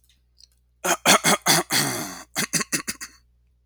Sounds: Cough